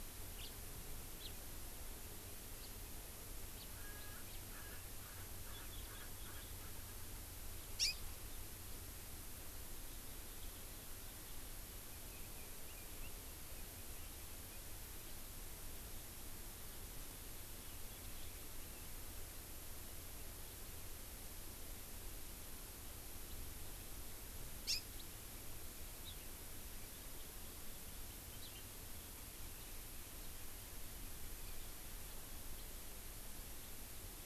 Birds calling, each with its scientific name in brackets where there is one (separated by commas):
Hawaii Amakihi (Chlorodrepanis virens), Chinese Hwamei (Garrulax canorus), Erckel's Francolin (Pternistis erckelii), House Finch (Haemorhous mexicanus)